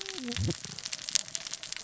{"label": "biophony, cascading saw", "recorder": "SoundTrap 600 or HydroMoth"}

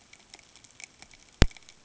{"label": "ambient", "recorder": "HydroMoth"}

